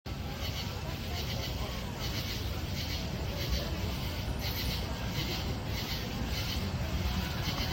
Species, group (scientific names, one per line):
Pterophylla camellifolia
Orthoptera